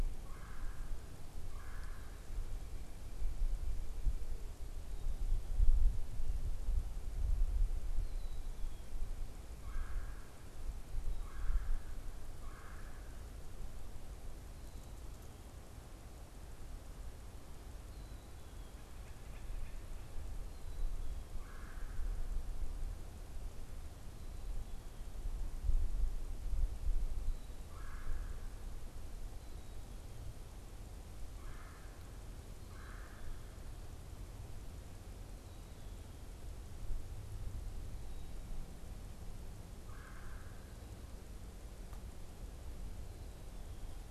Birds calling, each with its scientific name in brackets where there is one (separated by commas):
unidentified bird, Black-capped Chickadee (Poecile atricapillus), Red-bellied Woodpecker (Melanerpes carolinus)